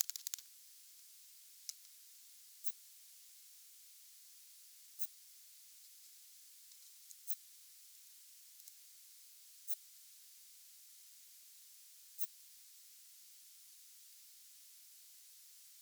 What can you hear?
Phaneroptera falcata, an orthopteran